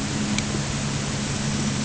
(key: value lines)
label: anthrophony, boat engine
recorder: HydroMoth